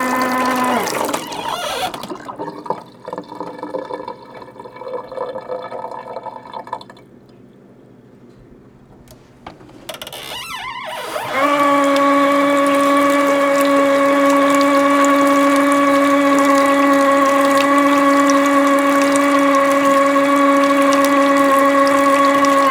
Is this quiet?
no